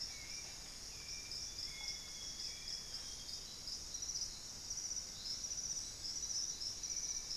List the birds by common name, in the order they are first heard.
Thrush-like Wren, Hauxwell's Thrush, Amazonian Grosbeak, Wing-barred Piprites